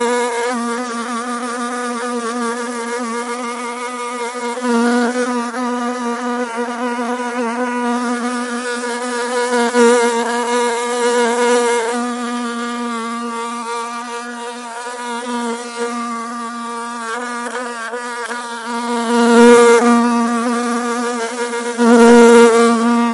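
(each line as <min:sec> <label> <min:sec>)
0:00.0 An insect is flying continuously in a room. 0:23.1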